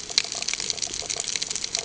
{"label": "ambient", "recorder": "HydroMoth"}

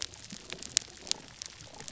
{"label": "biophony, damselfish", "recorder": "SoundTrap 300"}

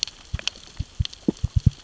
{"label": "biophony, knock", "recorder": "SoundTrap 600 or HydroMoth"}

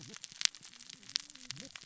{"label": "biophony, cascading saw", "recorder": "SoundTrap 600 or HydroMoth"}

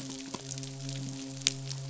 {"label": "biophony, midshipman", "recorder": "SoundTrap 500"}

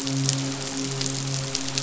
{"label": "biophony, midshipman", "recorder": "SoundTrap 500"}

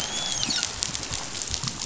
{"label": "biophony, dolphin", "recorder": "SoundTrap 500"}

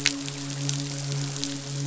{"label": "biophony, midshipman", "recorder": "SoundTrap 500"}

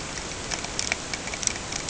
{"label": "ambient", "recorder": "HydroMoth"}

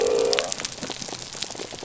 {"label": "biophony", "recorder": "SoundTrap 300"}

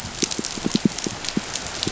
{"label": "biophony, pulse", "recorder": "SoundTrap 500"}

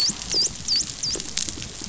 {"label": "biophony, dolphin", "recorder": "SoundTrap 500"}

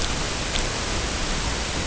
{"label": "ambient", "recorder": "HydroMoth"}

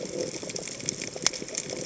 {"label": "biophony", "recorder": "HydroMoth"}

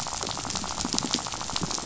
{"label": "biophony", "recorder": "SoundTrap 500"}
{"label": "biophony, rattle", "recorder": "SoundTrap 500"}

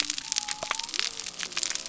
{"label": "biophony", "recorder": "SoundTrap 300"}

